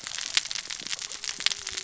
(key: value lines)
label: biophony, cascading saw
recorder: SoundTrap 600 or HydroMoth